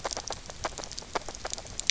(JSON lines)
{"label": "biophony, grazing", "recorder": "SoundTrap 300"}